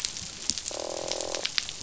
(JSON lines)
{"label": "biophony, croak", "recorder": "SoundTrap 500"}